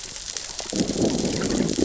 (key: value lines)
label: biophony, growl
recorder: SoundTrap 600 or HydroMoth